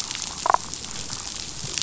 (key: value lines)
label: biophony, damselfish
recorder: SoundTrap 500